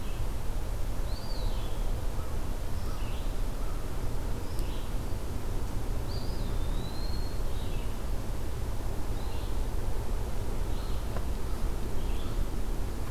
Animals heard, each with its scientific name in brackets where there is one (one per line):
Red-eyed Vireo (Vireo olivaceus)
Eastern Wood-Pewee (Contopus virens)